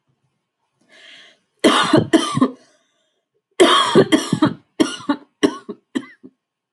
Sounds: Cough